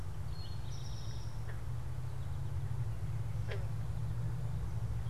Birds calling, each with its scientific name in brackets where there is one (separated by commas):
Eastern Towhee (Pipilo erythrophthalmus), American Goldfinch (Spinus tristis)